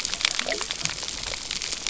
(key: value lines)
label: biophony
recorder: SoundTrap 300